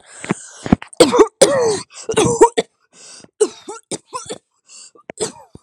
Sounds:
Cough